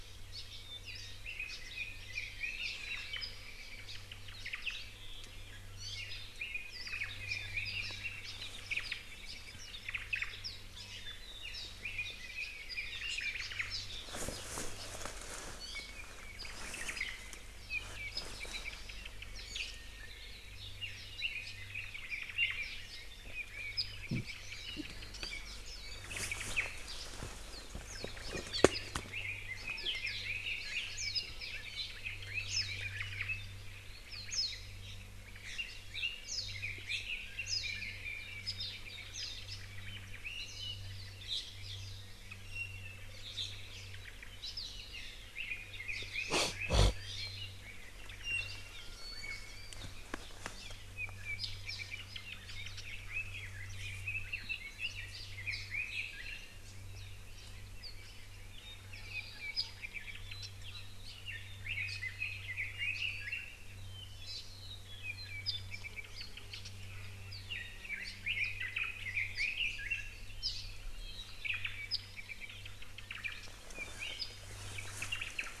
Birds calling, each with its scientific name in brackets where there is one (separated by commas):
Red-billed Leiothrix (Leiothrix lutea), Apapane (Himatione sanguinea), Iiwi (Drepanis coccinea), Warbling White-eye (Zosterops japonicus), Japanese Bush Warbler (Horornis diphone), Hawaii Creeper (Loxops mana), Omao (Myadestes obscurus)